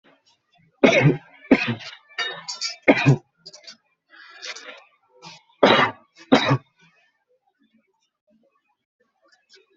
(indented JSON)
{
  "expert_labels": [
    {
      "quality": "ok",
      "cough_type": "dry",
      "dyspnea": false,
      "wheezing": false,
      "stridor": false,
      "choking": false,
      "congestion": false,
      "nothing": true,
      "diagnosis": "lower respiratory tract infection",
      "severity": "mild"
    }
  ],
  "age": 18,
  "gender": "male",
  "respiratory_condition": false,
  "fever_muscle_pain": false,
  "status": "symptomatic"
}